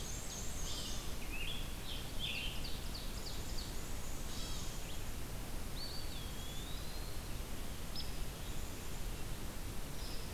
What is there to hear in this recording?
Ovenbird, Black-and-white Warbler, Red-eyed Vireo, Scarlet Tanager, White-tailed Deer, Eastern Wood-Pewee, Hairy Woodpecker, Dark-eyed Junco